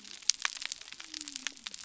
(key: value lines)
label: biophony
recorder: SoundTrap 300